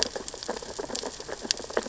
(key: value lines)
label: biophony, sea urchins (Echinidae)
recorder: SoundTrap 600 or HydroMoth